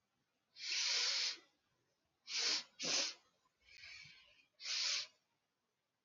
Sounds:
Sniff